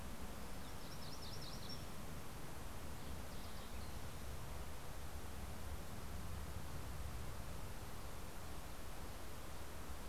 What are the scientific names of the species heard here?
Geothlypis tolmiei